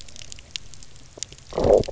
{"label": "biophony, low growl", "recorder": "SoundTrap 300"}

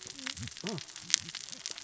{"label": "biophony, cascading saw", "recorder": "SoundTrap 600 or HydroMoth"}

